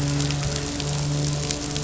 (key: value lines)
label: anthrophony, boat engine
recorder: SoundTrap 500